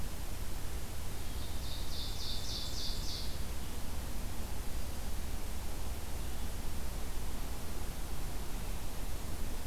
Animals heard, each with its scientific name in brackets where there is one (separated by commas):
Ovenbird (Seiurus aurocapilla)